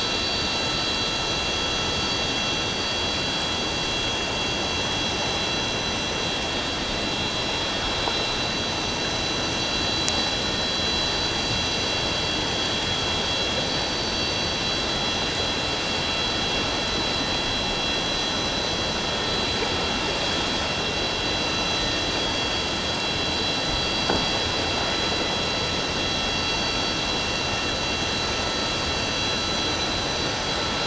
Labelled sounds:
21.8	22.1	vessel noise, 1.8 to 1.9 kHz

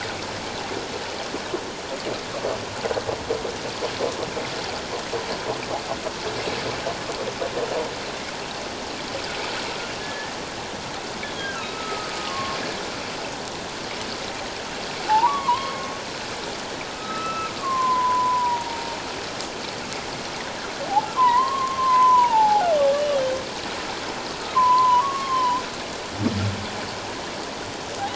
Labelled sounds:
10.0	10.3	humpback whale, 1.7 to 1.9 kHz
11.2	12.6	humpback whale, 1.0 to 3.5 kHz
15.1	15.9	humpback whale, 0.78 to 3.4 kHz
16.9	18.8	humpback whale, 0.88 to 2.7 kHz
21.2	22.7	humpback whale, 0.78 to 2.1 kHz
24.5	25.6	humpback whale, 0.91 to 1.2 kHz

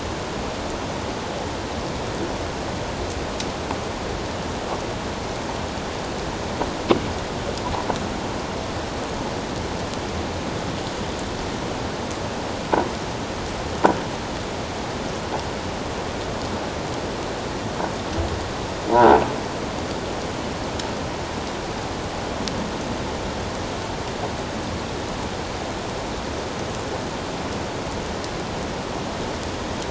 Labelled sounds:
18.9	19.2	croaking sound likely from a nearby submerged object, 1.3 to 1.6 kHz

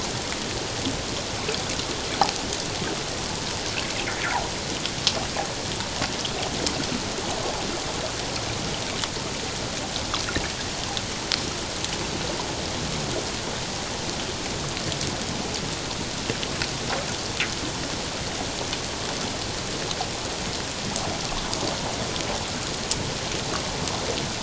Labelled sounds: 4.1	4.3	fish, 1.3 to 1.9 kHz

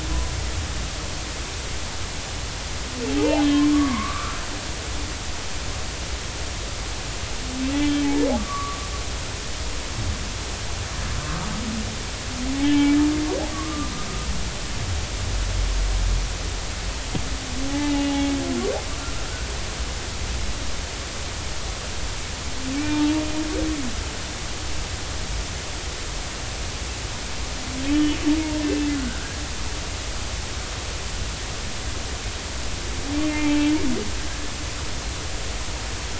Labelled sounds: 3.1	4.4	humpback whale, 0.80 to 3.0 kHz
7.7	8.2	humpback whale, 2.2 to 3.5 kHz
8.5	8.8	humpback whale, 1.1 to 1.2 kHz
12.6	12.9	humpback whale, 3.1 to 3.2 kHz
13.6	13.9	humpback whale, 1.1 to 1.3 kHz
17.7	18.1	humpback whale, 0.80 to 2.9 kHz
19.0	19.2	humpback whale, 1.3 to 1.4 kHz
22.8	23.0	humpback whale, 2.2 to 2.4 kHz
27.9	28.2	humpback whale, 2.9 to 3.0 kHz
28.9	29.4	humpback whale, 1.3 to 1.7 kHz
33.3	33.7	humpback whale, 0.83 to 0.93 kHz
34.3	34.7	humpback whale, 2.6 to 2.8 kHz

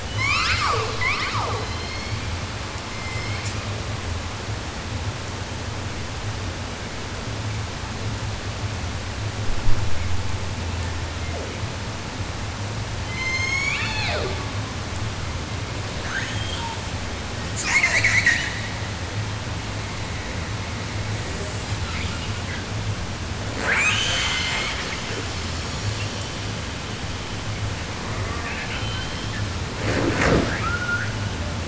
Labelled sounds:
0.0	2.6	killer whale, southern resident, J pod, call S01, 0.10 to 8.0 kHz
2.7	3.8	killer whale, 0.69 to 8.0 kHz
10.6	11.7	killer whale, southern resident, J pod, call S01, 0.14 to 3.9 kHz
13.0	14.8	killer whale, southern resident, J pod, call S01, 0.10 to 8.0 kHz
15.9	17.1	killer whale, southern resident, 0.10 to 7.3 kHz
17.5	19.0	killer whale, 0.28 to 8.0 kHz
21.4	22.7	killer whale, 0.57 to 5.9 kHz
23.4	26.6	killer whale, 0.10 to 8.0 kHz
27.9	29.5	killer whale, southern resident, 0.10 to 5.6 kHz
30.5	31.6	killer whale, 0.14 to 4.2 kHz

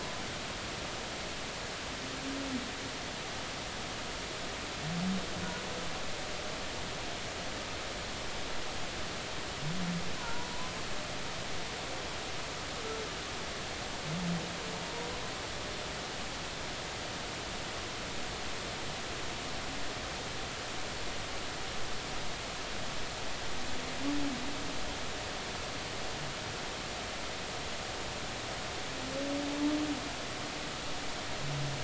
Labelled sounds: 10.2	10.5	humpback whale, 0.86 to 1.1 kHz

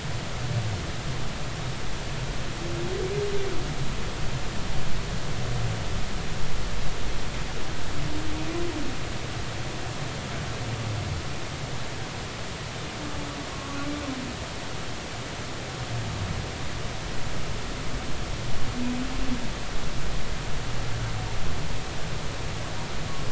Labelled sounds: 13.5	13.8	humpback whale, 1.0 to 1.2 kHz

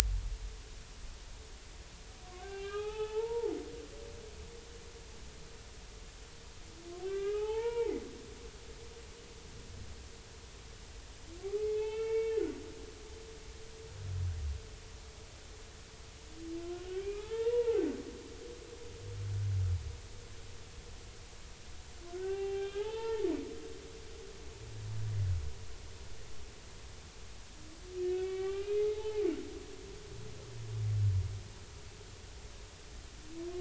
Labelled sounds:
2.2	3.5	humpback whale, 0.80 to 3.5 kHz
7.0	8.0	humpback whale, 0.80 to 3.2 kHz
11.6	12.4	humpback whale, 0.80 to 3.6 kHz
17.0	17.8	humpback whale, 0.80 to 2.6 kHz
22.1	23.3	humpback whale, 0.80 to 3.4 kHz
28.1	29.3	humpback whale, 0.80 to 3.5 kHz

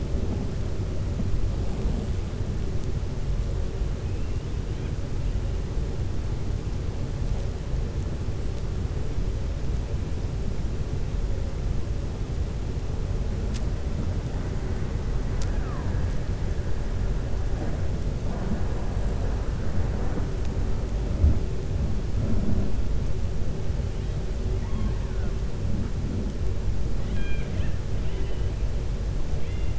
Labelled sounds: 15.3	16.0	killer whale, 0.87 to 3.9 kHz
26.9	27.8	killer whale, 1.4 to 4.0 kHz
29.3	29.7	killer whale, 2.0 to 3.5 kHz

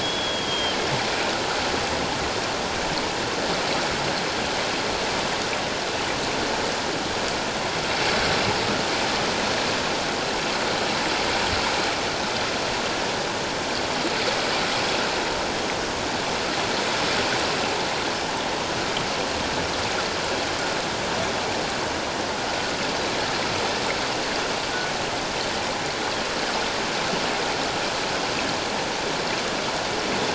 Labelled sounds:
0.0	0.8	killer whale, northern resident, G clan, GG subclan, 3.1 to 3.6 kHz

